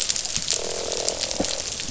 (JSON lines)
{"label": "biophony, croak", "recorder": "SoundTrap 500"}